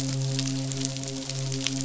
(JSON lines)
{"label": "biophony, midshipman", "recorder": "SoundTrap 500"}